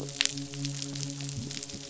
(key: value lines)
label: biophony, midshipman
recorder: SoundTrap 500